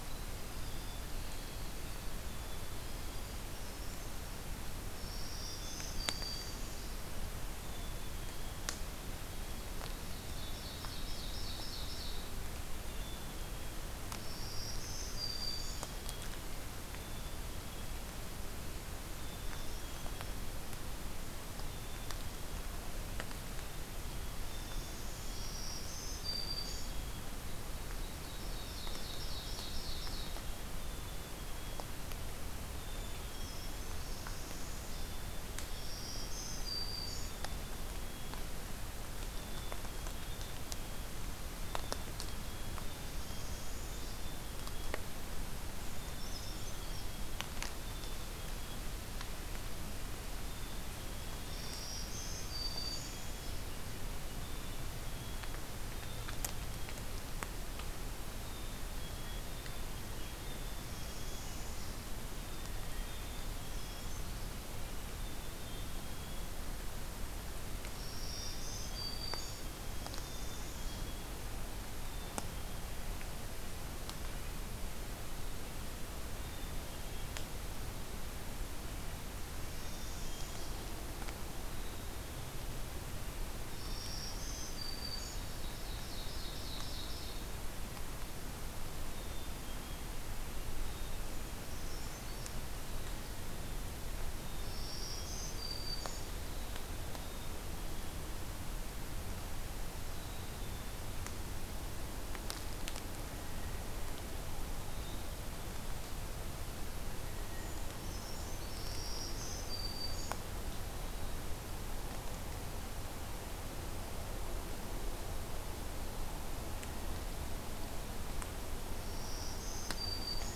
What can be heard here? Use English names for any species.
Winter Wren, Brown Creeper, Black-throated Green Warbler, Black-capped Chickadee, Northern Parula, Ovenbird, Blue Jay